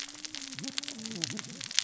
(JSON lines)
{"label": "biophony, cascading saw", "recorder": "SoundTrap 600 or HydroMoth"}